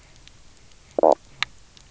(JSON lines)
{"label": "biophony, knock croak", "recorder": "SoundTrap 300"}